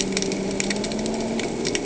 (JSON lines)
{"label": "anthrophony, boat engine", "recorder": "HydroMoth"}